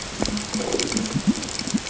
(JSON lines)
{"label": "ambient", "recorder": "HydroMoth"}